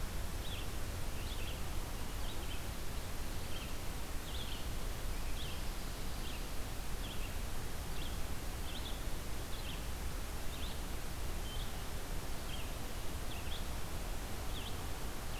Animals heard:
Red-eyed Vireo (Vireo olivaceus)

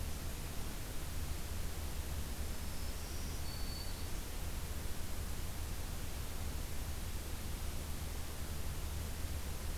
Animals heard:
Black-throated Green Warbler (Setophaga virens)

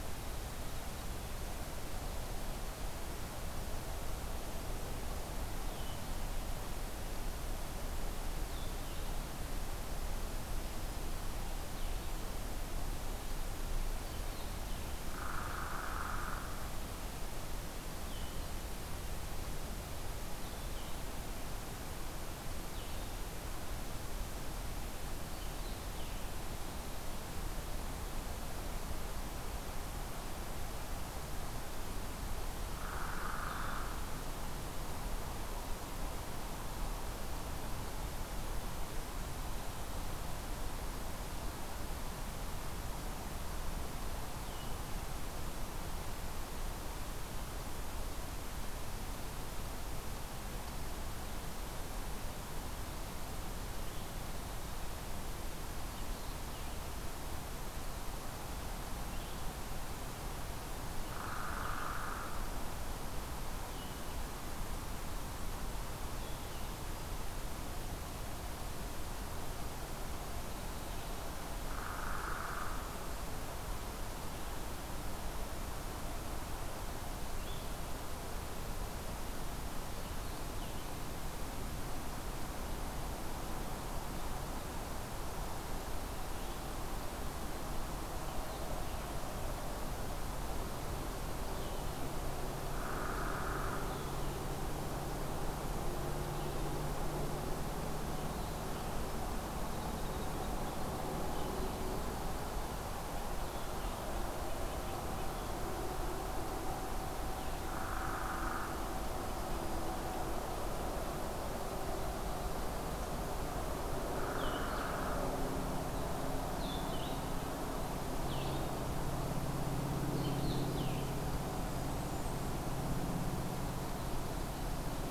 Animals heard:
Hairy Woodpecker (Dryobates villosus)
Blue-headed Vireo (Vireo solitarius)
Blackburnian Warbler (Setophaga fusca)

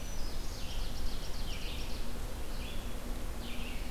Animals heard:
Red-eyed Vireo (Vireo olivaceus)
Ovenbird (Seiurus aurocapilla)
Black-throated Green Warbler (Setophaga virens)

